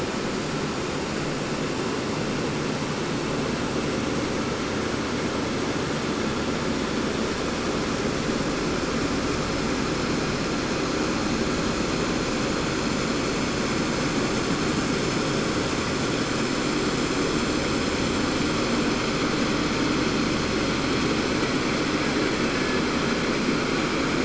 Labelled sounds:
21.9	23.0	killer whale, Bigg's (transient), 1.2 to 2.4 kHz

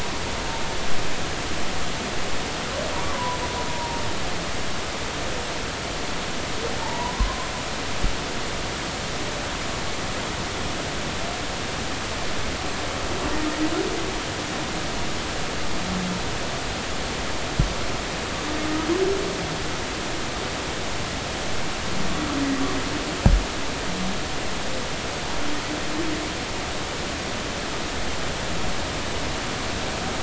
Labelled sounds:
3.1	4.0	humpback whale, 0.80 to 1.1 kHz
6.8	7.2	humpback whale, 0.83 to 1.0 kHz

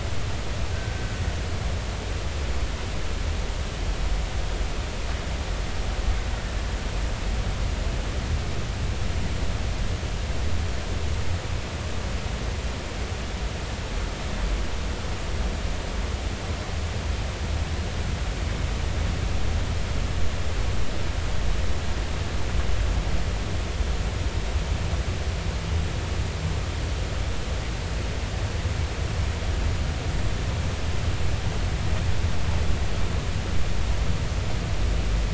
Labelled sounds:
0.7	1.2	killer whale, Bigg's (transient), 1.5 to 1.6 kHz

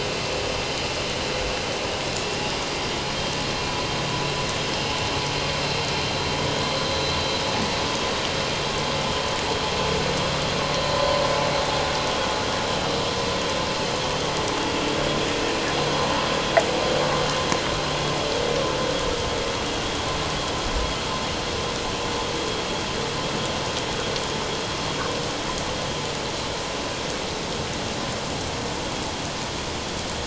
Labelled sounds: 2.7	3.0	vessel noise, 3.1 to 3.2 kHz

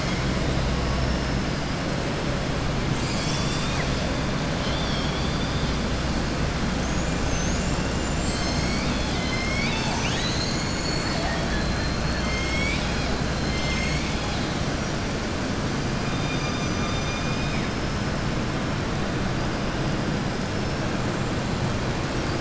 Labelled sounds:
4.5	5.7	killer whale, southern resident, 3.0 to 5.5 kHz
13.3	14.6	killer whale, southern resident, 2.1 to 7.6 kHz

